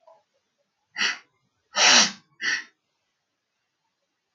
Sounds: Sniff